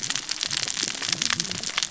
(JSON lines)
{"label": "biophony, cascading saw", "recorder": "SoundTrap 600 or HydroMoth"}